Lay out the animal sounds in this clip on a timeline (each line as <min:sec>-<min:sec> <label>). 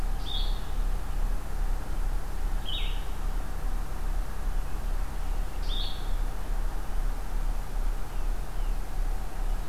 0:00.0-0:06.1 Blue-headed Vireo (Vireo solitarius)